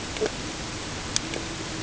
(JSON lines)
{"label": "ambient", "recorder": "HydroMoth"}